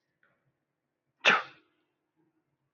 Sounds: Sneeze